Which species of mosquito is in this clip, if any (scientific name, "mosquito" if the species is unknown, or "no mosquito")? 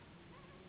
Anopheles gambiae s.s.